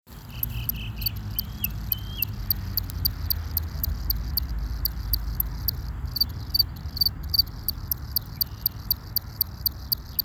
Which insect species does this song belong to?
Gryllus veletis